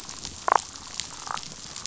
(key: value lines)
label: biophony, damselfish
recorder: SoundTrap 500